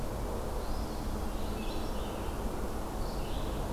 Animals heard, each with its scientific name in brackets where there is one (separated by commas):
Red-eyed Vireo (Vireo olivaceus), Eastern Wood-Pewee (Contopus virens)